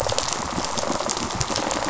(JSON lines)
{"label": "biophony, rattle response", "recorder": "SoundTrap 500"}